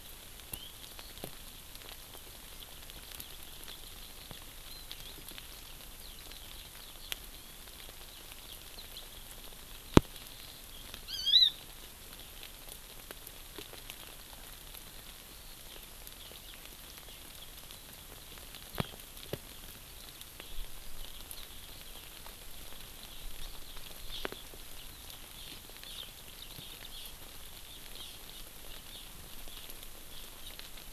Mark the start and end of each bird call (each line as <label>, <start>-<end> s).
Eurasian Skylark (Alauda arvensis), 4.6-9.0 s
Hawaii Amakihi (Chlorodrepanis virens), 11.0-11.5 s
Eurasian Skylark (Alauda arvensis), 19.8-22.3 s
Hawaii Amakihi (Chlorodrepanis virens), 24.0-24.2 s
Hawaii Amakihi (Chlorodrepanis virens), 25.3-26.0 s
Hawaii Amakihi (Chlorodrepanis virens), 26.9-27.0 s
Hawaii Amakihi (Chlorodrepanis virens), 27.9-28.1 s